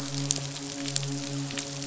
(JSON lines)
{"label": "biophony, midshipman", "recorder": "SoundTrap 500"}